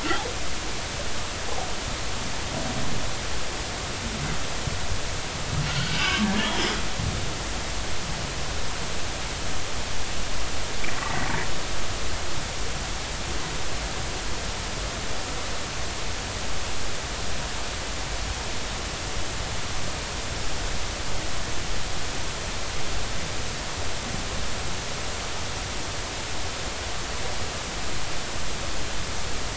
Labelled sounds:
5.7	6.7	humpback whale, 1.1 to 5.1 kHz
11.0	11.3	humpback whale, 1.9 to 2.1 kHz

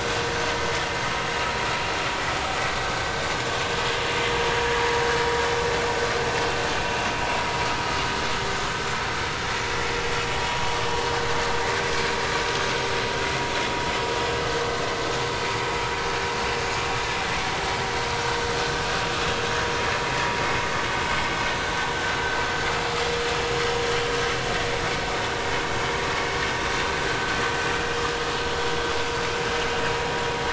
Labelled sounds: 16.6	16.8	vessel noise, 6.5 to 6.7 kHz

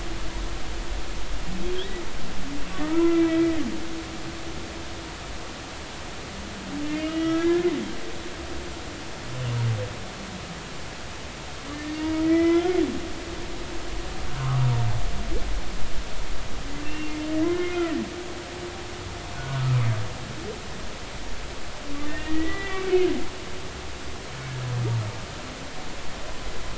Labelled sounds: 2.8	3.6	humpback whale, 0.90 to 2.4 kHz
6.9	7.7	humpback whale, 1.2 to 3.3 kHz
11.7	12.7	humpback whale, 1.3 to 2.4 kHz
14.4	14.7	humpback whale, 0.90 to 1.3 kHz
16.8	17.1	humpback whale, 2.6 to 2.8 kHz
17.6	18.0	humpback whale, 1.8 to 2.2 kHz
19.4	19.6	humpback whale, 1.4 to 1.5 kHz
22.0	23.1	humpback whale, 1.8 to 3.6 kHz

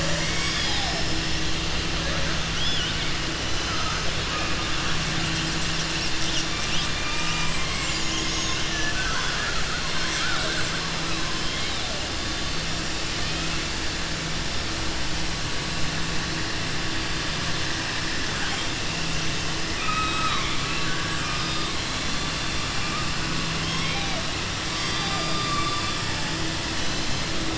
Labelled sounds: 2.5	3.0	killer whale, southern resident, 2.2 to 5.8 kHz
3.6	4.0	killer whale, southern resident, 0.65 to 2.1 kHz
6.9	8.0	killer whale, southern resident, 0.92 to 3.2 kHz
19.7	21.7	killer whale, southern resident, 1.1 to 4.9 kHz
23.6	24.2	killer whale, southern resident, 0.62 to 4.0 kHz

